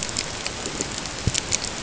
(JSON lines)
{"label": "ambient", "recorder": "HydroMoth"}